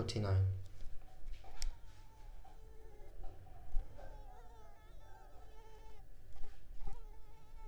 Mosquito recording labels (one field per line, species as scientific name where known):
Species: Culex pipiens complex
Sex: female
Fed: unfed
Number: one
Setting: cup